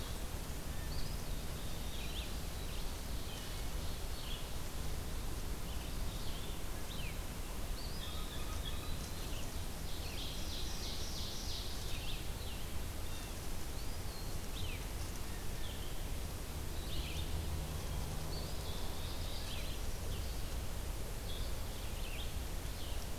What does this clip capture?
Red-eyed Vireo, Blue Jay, Eastern Wood-Pewee, Ovenbird